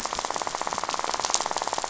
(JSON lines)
{"label": "biophony, rattle", "recorder": "SoundTrap 500"}